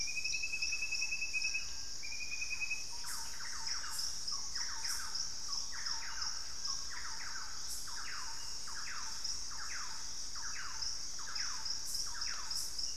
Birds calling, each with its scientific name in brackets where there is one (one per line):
Thrush-like Wren (Campylorhynchus turdinus)